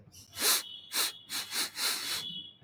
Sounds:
Sniff